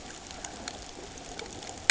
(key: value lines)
label: ambient
recorder: HydroMoth